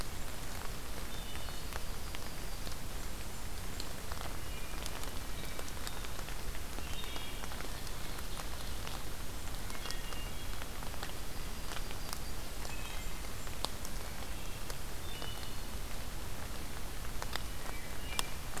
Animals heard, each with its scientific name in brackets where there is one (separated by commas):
Wood Thrush (Hylocichla mustelina), Blackburnian Warbler (Setophaga fusca), Yellow-rumped Warbler (Setophaga coronata), Ovenbird (Seiurus aurocapilla)